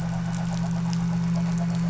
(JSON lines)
{"label": "anthrophony, boat engine", "recorder": "SoundTrap 500"}